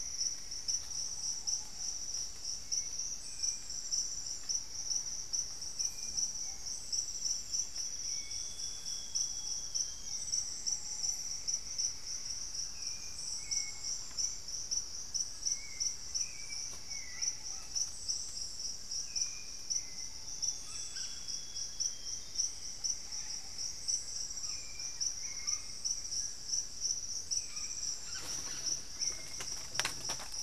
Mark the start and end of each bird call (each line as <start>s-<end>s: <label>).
0.0s-1.2s: Plumbeous Antbird (Myrmelastes hyperythrus)
0.0s-30.4s: Hauxwell's Thrush (Turdus hauxwelli)
0.0s-30.4s: Ruddy Pigeon (Patagioenas subvinacea)
2.7s-4.9s: unidentified bird
7.0s-10.7s: Amazonian Grosbeak (Cyanoloxia rothschildii)
8.2s-30.4s: Little Tinamou (Crypturellus soui)
9.4s-18.1s: Thrush-like Wren (Campylorhynchus turdinus)
9.9s-12.6s: Plumbeous Antbird (Myrmelastes hyperythrus)
17.6s-28.9s: Red-bellied Macaw (Orthopsittaca manilatus)
20.1s-22.5s: Amazonian Grosbeak (Cyanoloxia rothschildii)
22.2s-24.8s: Plumbeous Antbird (Myrmelastes hyperythrus)